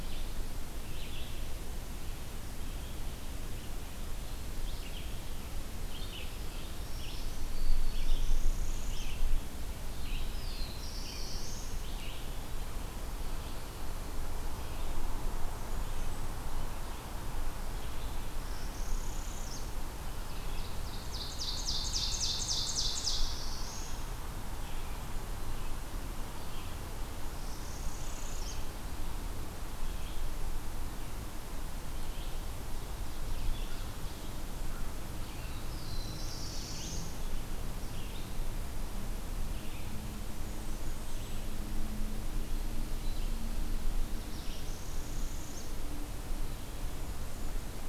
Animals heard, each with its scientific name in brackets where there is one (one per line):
Black-throated Blue Warbler (Setophaga caerulescens)
Red-eyed Vireo (Vireo olivaceus)
Eastern Wood-Pewee (Contopus virens)
Ovenbird (Seiurus aurocapilla)
Black-throated Green Warbler (Setophaga virens)
Blackburnian Warbler (Setophaga fusca)
Northern Parula (Setophaga americana)